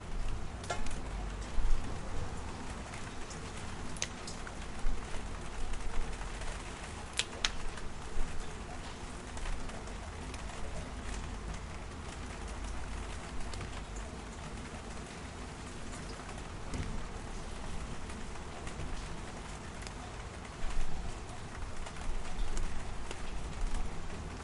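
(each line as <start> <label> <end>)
0.0 Soft rain falling. 24.4
0.7 A raindrop lands on metal. 1.1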